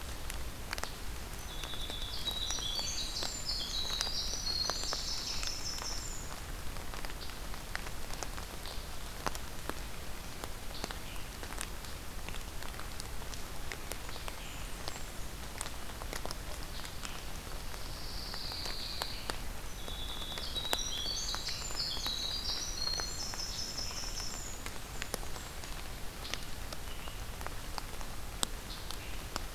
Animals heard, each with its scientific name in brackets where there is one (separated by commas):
Blackburnian Warbler (Setophaga fusca), Scarlet Tanager (Piranga olivacea), Pine Warbler (Setophaga pinus), Winter Wren (Troglodytes hiemalis)